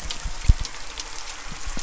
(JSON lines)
{"label": "anthrophony, boat engine", "recorder": "SoundTrap 300"}